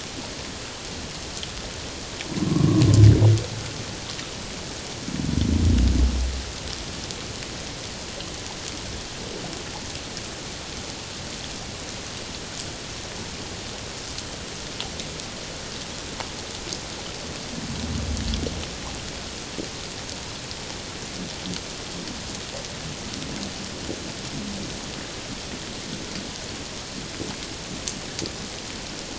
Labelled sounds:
2.5	2.8	humpback whale, 1.0 to 1.2 kHz

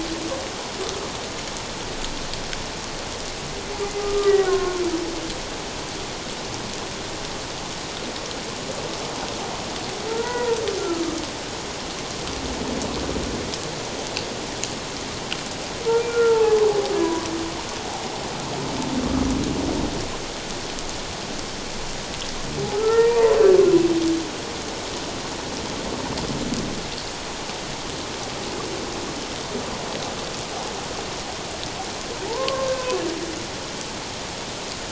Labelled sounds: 4.0	4.8	humpback whale, 1.0 to 2.0 kHz
10.1	11.1	humpback whale, 0.88 to 2.0 kHz
16.1	16.6	humpback whale, 0.81 to 1.5 kHz
17.0	17.3	humpback whale, 0.94 to 1.0 kHz
22.7	23.4	humpback whale, 0.84 to 1.9 kHz
32.3	33.0	humpback whale, 0.81 to 2.6 kHz

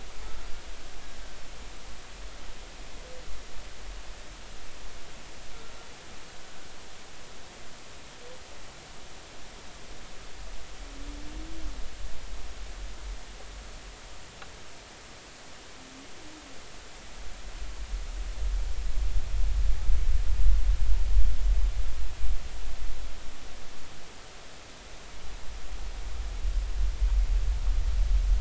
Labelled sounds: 0.2	0.5	humpback whale, 1.3 to 1.4 kHz

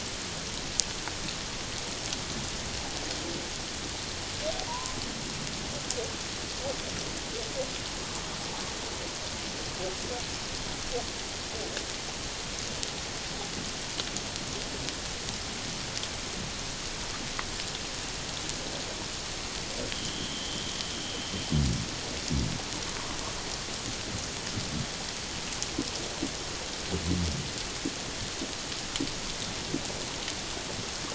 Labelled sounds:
4.7	5.0	humpback whale, 0.88 to 1.1 kHz

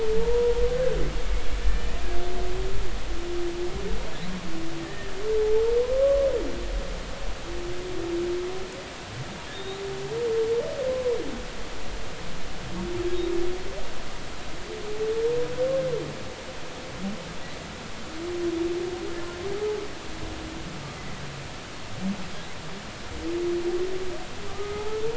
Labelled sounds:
0.1	0.6	humpback whale, 0.83 to 1.0 kHz
4.8	5.6	humpback whale, 0.80 to 1.9 kHz
9.5	9.8	humpback whale, 3.5 to 4.1 kHz
10.9	11.2	humpback whale, 0.93 to 1.1 kHz
24.5	24.9	humpback whale, 1.1 to 1.3 kHz

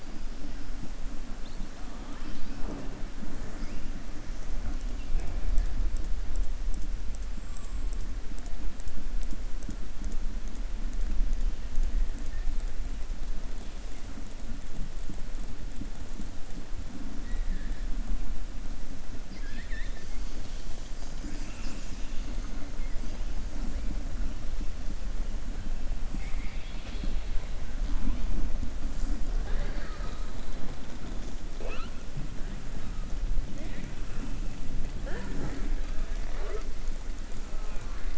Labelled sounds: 17.2	17.7	killer whale, southern resident, 1.6 to 2.4 kHz
19.2	20.1	killer whale, southern resident, 1.6 to 5.2 kHz
26.1	27.3	killer whale, southern resident, 1.4 to 4.7 kHz

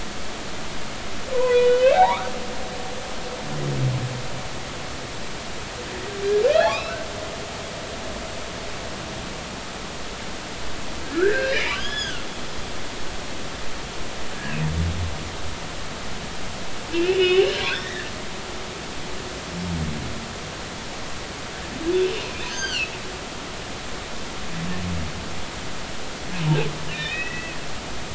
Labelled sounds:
1.3	2.3	humpback whale, 0.80 to 3.1 kHz
6.5	7.0	humpback whale, 2.1 to 3.5 kHz
11.0	12.3	humpback whale, 1.3 to 5.2 kHz
17.0	18.1	humpback whale, 1.5 to 4.2 kHz
21.9	22.9	humpback whale, 1.4 to 6.5 kHz
26.8	27.6	humpback whale, 1.7 to 3.9 kHz

